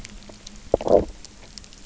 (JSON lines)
{"label": "biophony, low growl", "recorder": "SoundTrap 300"}